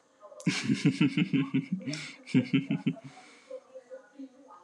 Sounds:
Laughter